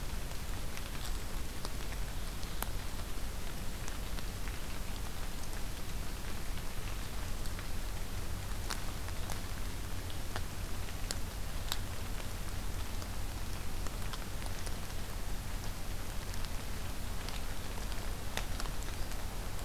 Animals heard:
forest ambience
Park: Acadia National Park